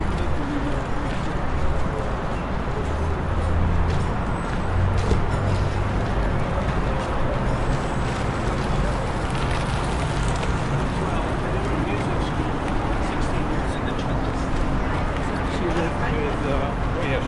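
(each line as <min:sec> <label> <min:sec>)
0:00.1 An urban street hums steadily with daily noise. 0:17.3
0:01.1 Pedestrians are walking on the street with muffled footsteps amid city bustle. 0:07.4
0:10.9 People are calmly chatting on the street with overlapping voices distorted by street noise. 0:17.3
0:12.1 Car engines revving blend into a monotone, muffled hum. 0:16.3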